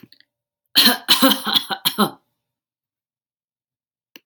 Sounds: Cough